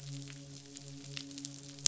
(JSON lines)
{"label": "biophony, midshipman", "recorder": "SoundTrap 500"}